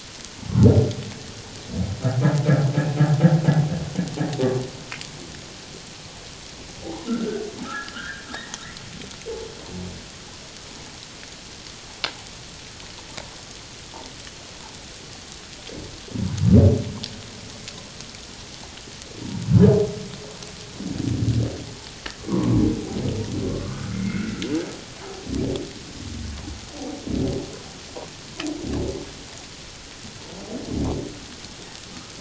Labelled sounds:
6.8	8.6	humpback whale, 0.78 to 2.0 kHz
22.3	24.4	humpback whale, 0.91 to 2.2 kHz

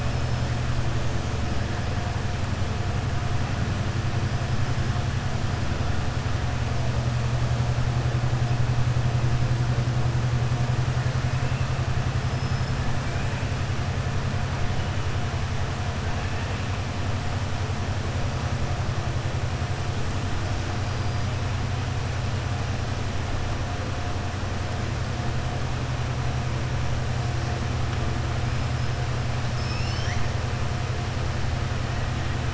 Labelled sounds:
29.4	30.2	killer whale, southern resident, 1.7 to 6.6 kHz

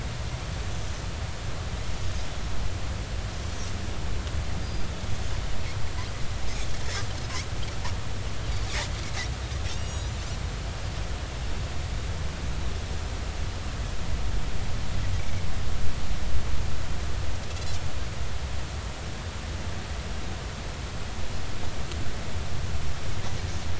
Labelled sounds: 4.6	4.9	Pacific white-sided dolphin, 4.8 to 4.9 kHz
9.7	10.2	Pacific white-sided dolphin, 2.7 to 7.7 kHz
15.2	15.5	Pacific white-sided dolphin, 2.1 to 2.4 kHz

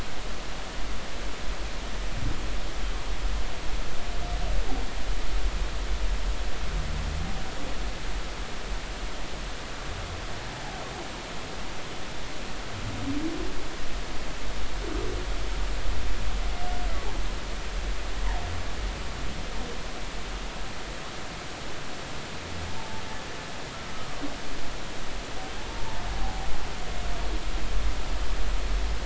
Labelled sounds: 22.8	23.0	humpback whale, 0.83 to 0.96 kHz
26.1	26.5	humpback whale, 0.80 to 0.86 kHz

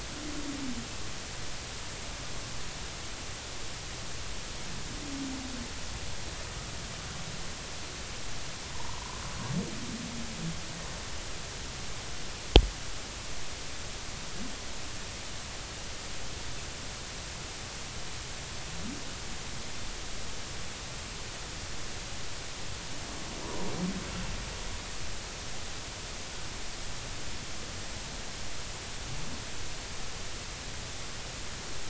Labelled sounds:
8.7	9.2	humpback whale, 0.86 to 1.2 kHz

